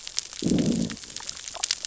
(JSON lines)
{"label": "biophony, growl", "recorder": "SoundTrap 600 or HydroMoth"}